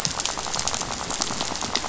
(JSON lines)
{"label": "biophony, rattle", "recorder": "SoundTrap 500"}